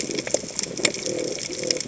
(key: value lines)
label: biophony
recorder: HydroMoth